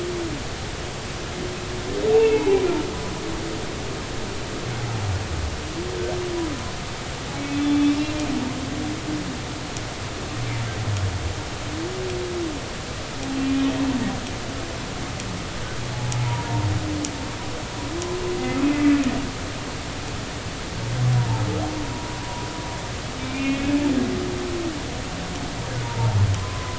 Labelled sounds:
2.1	2.6	humpback whale, 0.80 to 2.8 kHz
7.5	8.0	humpback whale, 3.4 to 3.6 kHz
16.3	16.7	humpback whale, 0.86 to 1.0 kHz
21.2	21.4	humpback whale, 0.83 to 1.0 kHz
21.8	22.5	humpback whale, 0.93 to 1.0 kHz
23.2	23.7	humpback whale, 2.1 to 2.6 kHz
25.8	26.7	humpback whale, 0.80 to 1.2 kHz

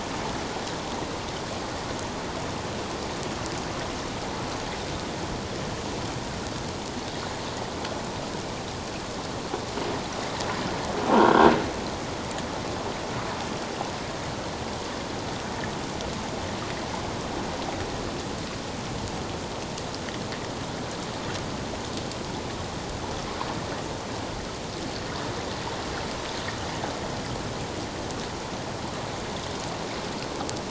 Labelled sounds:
11.2	11.5	croaking sound likely from a nearby submerged object, 1.3 to 1.6 kHz

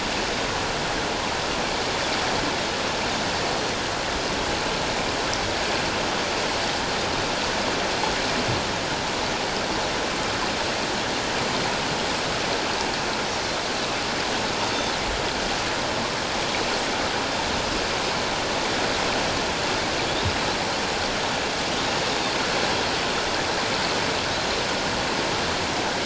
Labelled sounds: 24.3	24.6	Pacific white-sided dolphin, 3.8 to 4.2 kHz

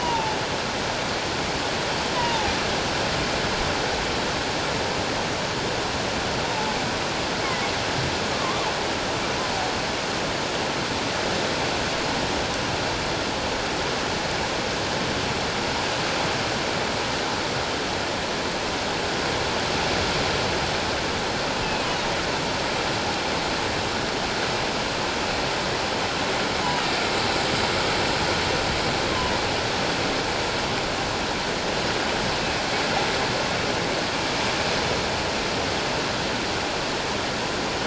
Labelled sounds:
0.0	0.4	killer whale, offshore, 0.81 to 1.0 kHz
2.1	2.5	killer whale, offshore, 0.78 to 1.1 kHz
6.5	6.8	killer whale, offshore, 0.81 to 0.94 kHz
8.3	8.7	killer whale, offshore, 0.97 to 1.3 kHz
21.6	21.9	killer whale, offshore, 2.5 to 2.7 kHz

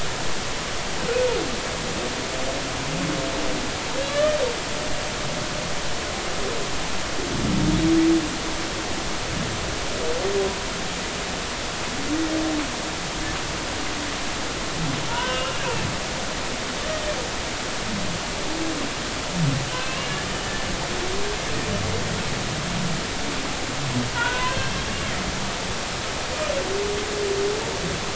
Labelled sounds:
4.0	4.4	humpback whale, 1.1 to 3.6 kHz
15.1	15.5	humpback whale, 0.90 to 1.6 kHz
24.1	24.7	humpback whale, 0.90 to 2.7 kHz

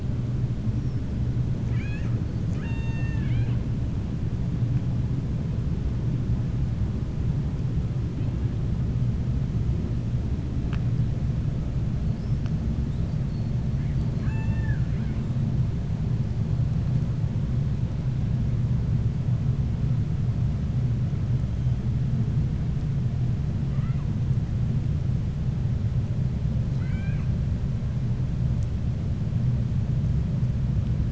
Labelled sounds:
1.6	3.6	killer whale, 0.87 to 7.4 kHz
13.9	15.2	killer whale, 0.87 to 4.6 kHz
23.6	24.1	killer whale, 1.0 to 3.0 kHz
26.7	27.3	killer whale, 0.82 to 4.5 kHz

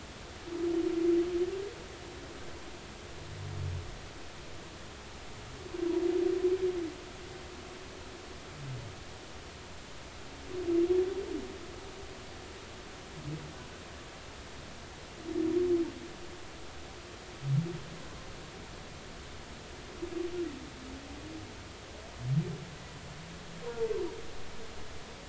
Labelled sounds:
23.6	23.9	humpback whale, 0.86 to 1.1 kHz

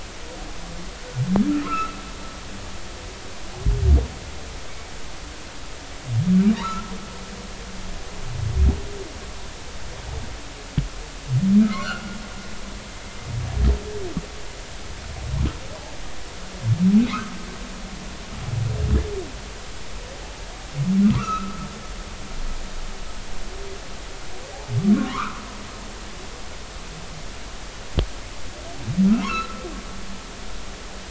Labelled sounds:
1.5	2.0	humpback whale, 1.2 to 1.5 kHz
6.6	6.9	humpback whale, 0.86 to 1.4 kHz
11.7	12.2	humpback whale, 1.2 to 4.5 kHz
17.1	17.3	humpback whale, 0.99 to 1.6 kHz
21.0	21.7	humpback whale, 0.93 to 2.8 kHz
24.9	25.4	humpback whale, 0.93 to 1.6 kHz
29.2	29.6	humpback whale, 0.90 to 1.5 kHz

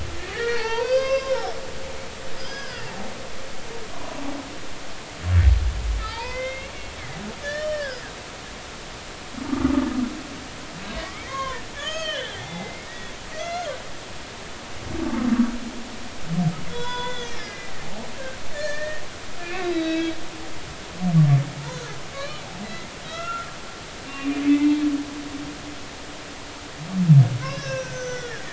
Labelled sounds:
0.3	1.5	humpback whale, 0.80 to 6.5 kHz
2.4	2.9	humpback whale, 1.3 to 5.3 kHz
3.9	4.3	humpback whale, 0.90 to 1.2 kHz
6.0	6.7	humpback whale, 0.83 to 3.8 kHz
7.4	8.0	humpback whale, 1.4 to 5.6 kHz
11.2	12.9	humpback whale, 0.93 to 4.6 kHz
13.4	13.7	humpback whale, 1.2 to 2.9 kHz
16.7	17.7	humpback whale, 0.93 to 6.4 kHz
18.5	19.0	humpback whale, 1.7 to 2.5 kHz
19.6	20.2	humpback whale, 1.6 to 4.0 kHz
22.1	23.5	humpback whale, 1.1 to 3.5 kHz
24.1	24.7	humpback whale, 1.1 to 2.5 kHz
27.4	28.5	humpback whale, 0.99 to 6.6 kHz

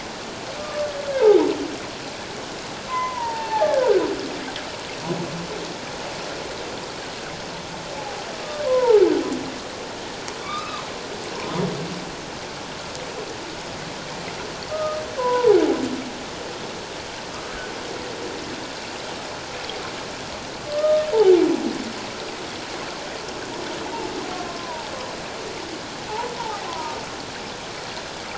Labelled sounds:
0.6	1.5	humpback whale, 0.78 to 1.7 kHz
2.9	3.9	humpback whale, 0.78 to 2.8 kHz
8.0	8.2	humpback whale, 0.78 to 0.91 kHz
8.6	9.0	humpback whale, 0.78 to 1.5 kHz
10.4	10.8	humpback whale, 1.0 to 2.7 kHz
14.7	15.5	humpback whale, 0.81 to 1.3 kHz
20.7	21.1	humpback whale, 1.1 to 1.3 kHz
24.6	24.9	humpback whale, 0.84 to 1.1 kHz
26.4	27.0	humpback whale, 0.78 to 1.1 kHz

